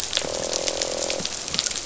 {"label": "biophony, croak", "recorder": "SoundTrap 500"}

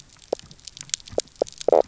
{"label": "biophony, knock croak", "recorder": "SoundTrap 300"}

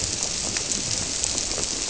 {"label": "biophony", "recorder": "SoundTrap 300"}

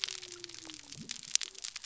{"label": "biophony", "recorder": "SoundTrap 300"}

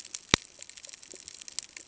{"label": "ambient", "recorder": "HydroMoth"}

